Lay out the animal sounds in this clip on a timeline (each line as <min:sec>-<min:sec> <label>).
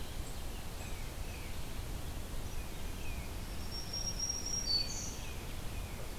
0:00.7-0:01.6 Tufted Titmouse (Baeolophus bicolor)
0:02.4-0:03.4 Tufted Titmouse (Baeolophus bicolor)
0:03.3-0:05.2 Black-throated Green Warbler (Setophaga virens)
0:04.7-0:06.2 Tufted Titmouse (Baeolophus bicolor)